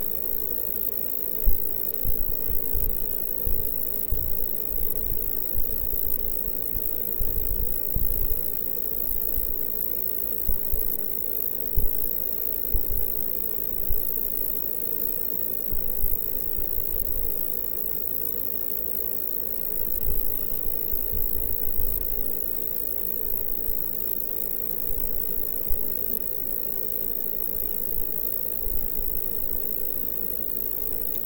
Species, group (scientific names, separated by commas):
Roeseliana roeselii, Orthoptera